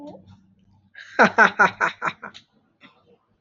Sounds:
Laughter